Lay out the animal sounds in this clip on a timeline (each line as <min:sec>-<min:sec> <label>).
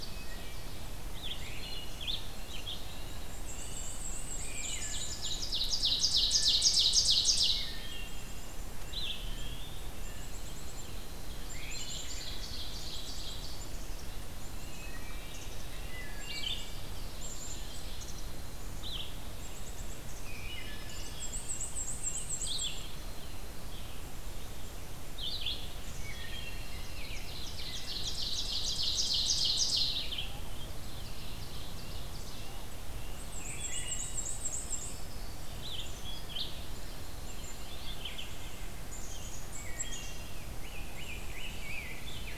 0:00.0-0:00.6 Wood Thrush (Hylocichla mustelina)
0:01.0-0:02.8 Red-eyed Vireo (Vireo olivaceus)
0:01.4-0:02.0 Wood Thrush (Hylocichla mustelina)
0:02.2-0:10.4 Red-breasted Nuthatch (Sitta canadensis)
0:03.3-0:05.1 Black-and-white Warbler (Mniotilta varia)
0:04.4-0:05.0 Wood Thrush (Hylocichla mustelina)
0:04.6-0:05.4 Black-capped Chickadee (Poecile atricapillus)
0:05.2-0:07.7 Ovenbird (Seiurus aurocapilla)
0:06.2-0:06.9 Wood Thrush (Hylocichla mustelina)
0:07.5-0:08.4 Wood Thrush (Hylocichla mustelina)
0:07.7-0:20.4 Black-capped Chickadee (Poecile atricapillus)
0:08.7-0:09.9 Eastern Wood-Pewee (Contopus virens)
0:11.4-0:13.5 Ovenbird (Seiurus aurocapilla)
0:14.6-0:15.4 Wood Thrush (Hylocichla mustelina)
0:15.9-0:16.7 Wood Thrush (Hylocichla mustelina)
0:16.2-0:30.4 Red-eyed Vireo (Vireo olivaceus)
0:20.2-0:21.3 Black-throated Green Warbler (Setophaga virens)
0:20.2-0:20.9 Wood Thrush (Hylocichla mustelina)
0:21.0-0:22.7 Black-and-white Warbler (Mniotilta varia)
0:25.9-0:26.8 Wood Thrush (Hylocichla mustelina)
0:26.8-0:30.2 Ovenbird (Seiurus aurocapilla)
0:30.5-0:32.6 Ovenbird (Seiurus aurocapilla)
0:31.8-0:33.3 Red-breasted Nuthatch (Sitta canadensis)
0:33.0-0:35.0 Black-and-white Warbler (Mniotilta varia)
0:33.4-0:34.2 Wood Thrush (Hylocichla mustelina)
0:34.4-0:35.7 Black-throated Green Warbler (Setophaga virens)
0:35.3-0:38.2 Red-eyed Vireo (Vireo olivaceus)
0:37.2-0:42.4 Black-capped Chickadee (Poecile atricapillus)
0:39.1-0:42.4 Rose-breasted Grosbeak (Pheucticus ludovicianus)
0:39.5-0:40.3 Wood Thrush (Hylocichla mustelina)